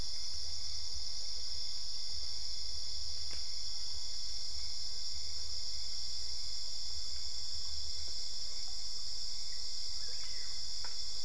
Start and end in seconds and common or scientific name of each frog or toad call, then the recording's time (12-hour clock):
none
1:00am